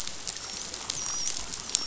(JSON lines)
{"label": "biophony, dolphin", "recorder": "SoundTrap 500"}